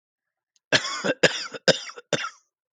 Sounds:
Cough